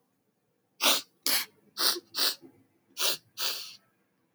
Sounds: Sniff